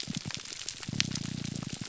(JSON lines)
{"label": "biophony, grouper groan", "recorder": "SoundTrap 300"}